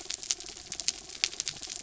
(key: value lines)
label: anthrophony, mechanical
recorder: SoundTrap 300